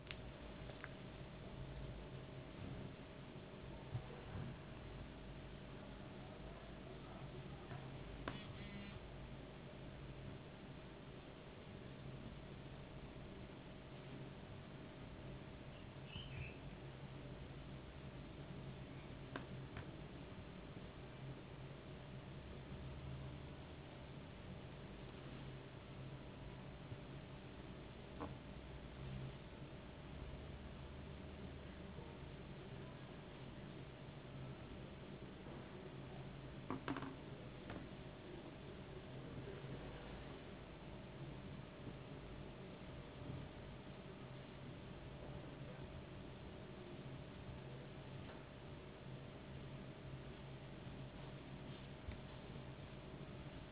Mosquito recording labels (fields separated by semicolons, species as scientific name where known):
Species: no mosquito; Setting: insect culture